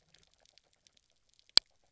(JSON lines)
{"label": "biophony, grazing", "recorder": "SoundTrap 300"}